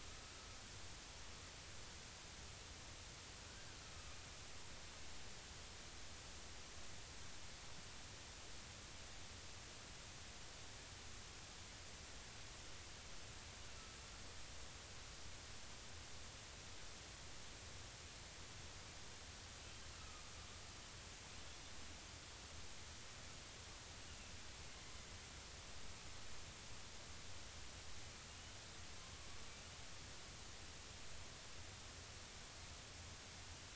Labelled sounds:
3.5	3.8	killer whale, northern resident, 1.4 to 1.7 kHz
19.9	20.3	killer whale, northern resident, 1.1 to 1.4 kHz
24.1	24.3	killer whale, northern resident, 2.6 to 2.9 kHz
28.3	28.5	killer whale, northern resident, 2.8 to 3.1 kHz

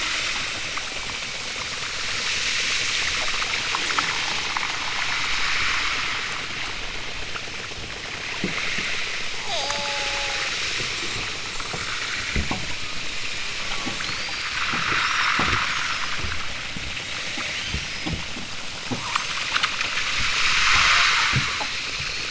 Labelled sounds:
9.3	10.5	killer whale, southern Alaska resident, 0.28 to 1.1 kHz
17.4	18.2	killer whale, southern Alaska resident, 2.8 to 7.3 kHz
19.0	19.4	killer whale, southern Alaska resident, 0.60 to 8.0 kHz

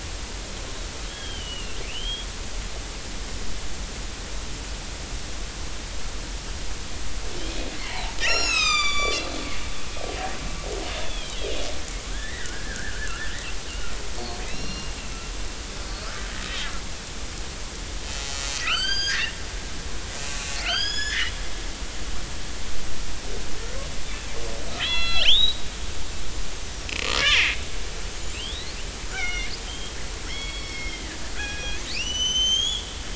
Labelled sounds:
1.1	2.3	killer whale, northern resident, A clan, 1.5 to 3.4 kHz
7.8	9.3	killer whale, northern resident, A clan, 0.80 to 8.0 kHz
9.9	10.2	killer whale, northern resident, A clan, 3.1 to 3.3 kHz
10.9	11.4	killer whale, northern resident, A clan, 2.3 to 3.6 kHz
12.1	13.2	killer whale, northern resident, A clan, 1.3 to 2.1 kHz
14.4	14.9	killer whale, northern resident, A clan, 2.4 to 5.7 kHz
18.3	19.3	killer whale, northern resident, A clan, 1.2 to 8.0 kHz
20.2	21.3	killer whale, northern resident, A clan, 1.2 to 7.0 kHz
24.8	25.6	killer whale, northern resident, A clan, 1.3 to 4.4 kHz
27.3	28.8	killer whale, northern resident, A clan, 2.0 to 7.6 kHz
29.1	30.0	killer whale, northern resident, A clan, 1.3 to 5.9 kHz
30.3	33.0	killer whale, northern resident, A clan, 1.4 to 6.9 kHz

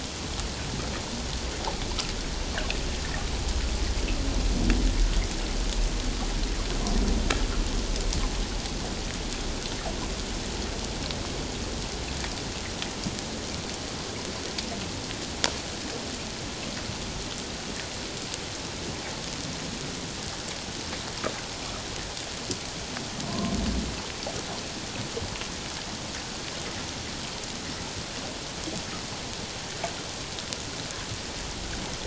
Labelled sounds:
23.3	23.6	humpback whale, 0.91 to 1.2 kHz

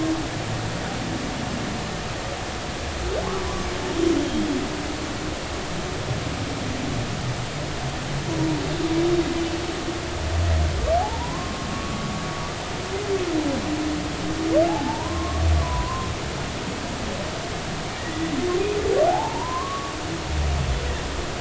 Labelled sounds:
11.0	12.0	humpback whale, 0.80 to 1.2 kHz
14.7	16.1	humpback whale, 0.80 to 1.2 kHz
18.0	18.3	humpback whale, 1.8 to 2.1 kHz
19.1	19.9	humpback whale, 0.80 to 1.2 kHz

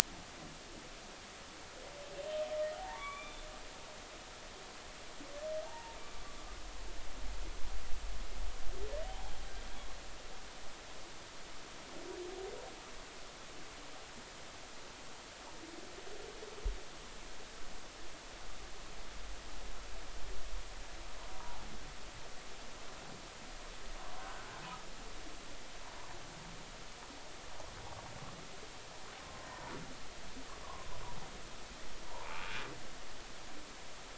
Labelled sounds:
2.8	3.5	humpback whale, 0.80 to 3.6 kHz
5.6	6.0	humpback whale, 0.80 to 0.99 kHz
9.0	9.5	humpback whale, 0.80 to 3.4 kHz
21.3	21.6	humpback whale, 0.80 to 0.99 kHz
24.2	24.5	humpback whale, 1.4 to 1.6 kHz
29.2	29.5	humpback whale, 1.0 to 1.1 kHz
30.6	30.9	humpback whale, 0.96 to 1.2 kHz
32.1	32.3	humpback whale, 0.86 to 1.1 kHz

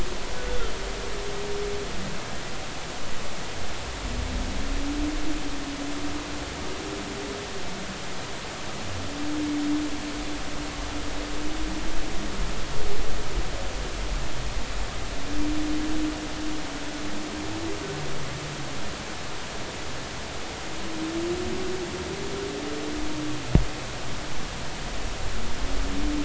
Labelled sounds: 0.5	0.7	humpback whale, 1.3 to 1.5 kHz

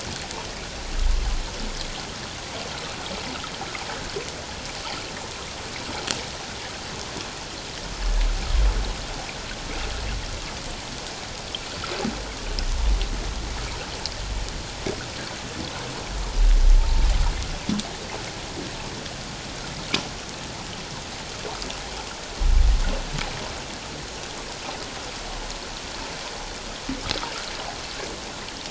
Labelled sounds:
16.8	17.0	humpback whale, 0.81 to 1.0 kHz

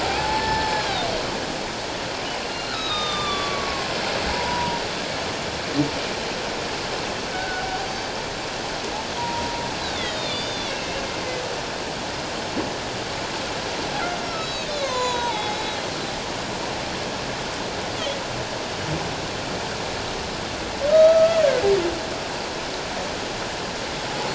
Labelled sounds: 0.0	1.1	humpback whale, 0.78 to 5.4 kHz
2.4	3.9	humpback whale, 1.0 to 6.2 kHz
4.3	4.8	humpback whale, 0.88 to 1.0 kHz
7.3	8.2	humpback whale, 1.4 to 4.8 kHz
9.2	11.1	humpback whale, 0.91 to 4.8 kHz
14.2	15.9	humpback whale, 0.78 to 7.1 kHz
20.9	21.4	humpback whale, 1.2 to 4.6 kHz

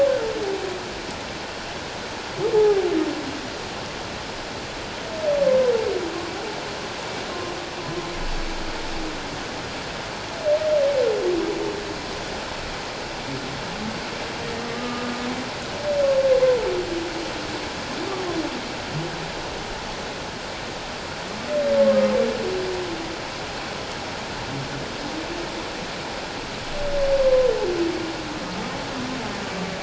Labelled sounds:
2.5	2.9	humpback whale, 0.78 to 0.91 kHz
14.6	15.1	humpback whale, 1.1 to 1.3 kHz
27.2	27.5	humpback whale, 0.97 to 1.1 kHz

